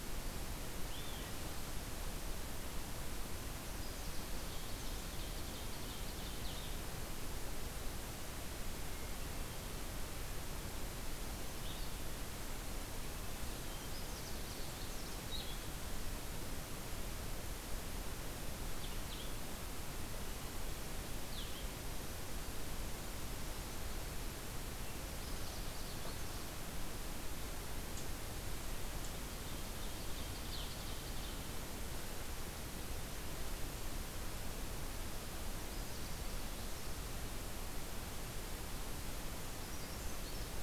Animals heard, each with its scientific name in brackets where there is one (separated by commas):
Ovenbird (Seiurus aurocapilla), Brown Creeper (Certhia americana), Blue-headed Vireo (Vireo solitarius), Canada Warbler (Cardellina canadensis), Eastern Wood-Pewee (Contopus virens)